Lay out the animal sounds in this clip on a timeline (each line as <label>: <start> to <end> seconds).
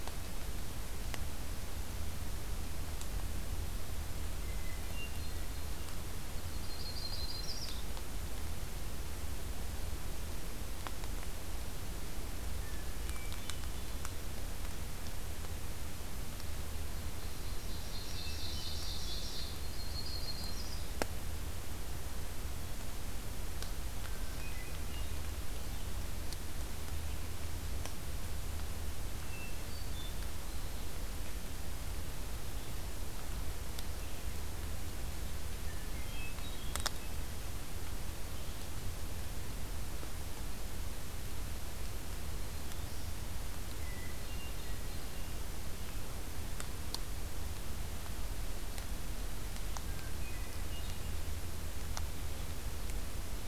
Hermit Thrush (Catharus guttatus): 4.2 to 5.5 seconds
Yellow-rumped Warbler (Setophaga coronata): 6.4 to 7.9 seconds
Hermit Thrush (Catharus guttatus): 12.5 to 14.2 seconds
Ovenbird (Seiurus aurocapilla): 17.0 to 19.6 seconds
Hermit Thrush (Catharus guttatus): 17.9 to 18.8 seconds
Yellow-rumped Warbler (Setophaga coronata): 19.6 to 20.9 seconds
Hermit Thrush (Catharus guttatus): 24.2 to 25.1 seconds
Hermit Thrush (Catharus guttatus): 29.2 to 30.1 seconds
Hermit Thrush (Catharus guttatus): 35.6 to 37.1 seconds
Black-throated Green Warbler (Setophaga virens): 42.0 to 43.2 seconds
Hermit Thrush (Catharus guttatus): 43.8 to 45.3 seconds
Hermit Thrush (Catharus guttatus): 49.8 to 51.1 seconds